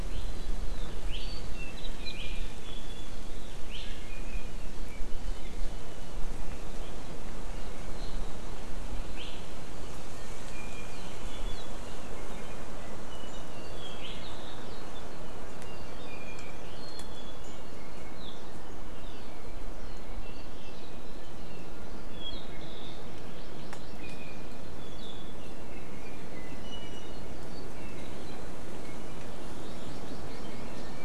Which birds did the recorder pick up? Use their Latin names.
Drepanis coccinea, Chlorodrepanis virens